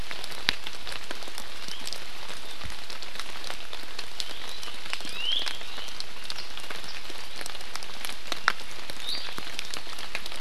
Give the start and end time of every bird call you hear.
4.2s-4.6s: Iiwi (Drepanis coccinea)
5.0s-5.4s: Iiwi (Drepanis coccinea)
9.0s-9.3s: Iiwi (Drepanis coccinea)

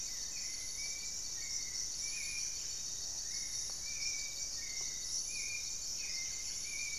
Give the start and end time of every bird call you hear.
0.0s-0.9s: Goeldi's Antbird (Akletos goeldii)
0.0s-7.0s: Buff-breasted Wren (Cantorchilus leucotis)
0.0s-7.0s: Gray-fronted Dove (Leptotila rufaxilla)
0.0s-7.0s: Hauxwell's Thrush (Turdus hauxwelli)

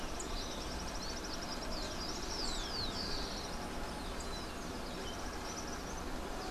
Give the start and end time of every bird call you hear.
0.0s-6.5s: Rufous-collared Sparrow (Zonotrichia capensis)

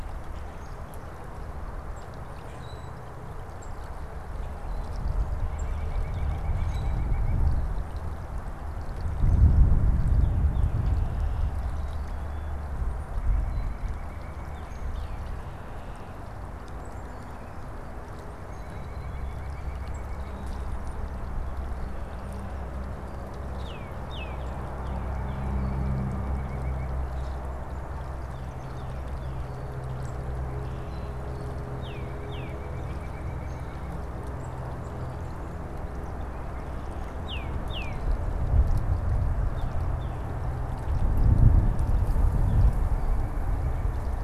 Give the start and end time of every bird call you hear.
0.0s-6.0s: unidentified bird
2.5s-3.0s: Common Grackle (Quiscalus quiscula)
5.4s-7.4s: White-breasted Nuthatch (Sitta carolinensis)
6.5s-7.1s: Common Grackle (Quiscalus quiscula)
13.0s-15.0s: White-breasted Nuthatch (Sitta carolinensis)
14.3s-15.3s: Tufted Titmouse (Baeolophus bicolor)
18.2s-20.5s: White-breasted Nuthatch (Sitta carolinensis)
23.4s-25.6s: Tufted Titmouse (Baeolophus bicolor)
24.8s-26.9s: White-breasted Nuthatch (Sitta carolinensis)
28.0s-29.6s: Tufted Titmouse (Baeolophus bicolor)
31.5s-32.7s: Tufted Titmouse (Baeolophus bicolor)
31.7s-34.0s: White-breasted Nuthatch (Sitta carolinensis)
37.1s-38.1s: Tufted Titmouse (Baeolophus bicolor)
39.3s-40.3s: Tufted Titmouse (Baeolophus bicolor)
42.6s-44.2s: White-breasted Nuthatch (Sitta carolinensis)

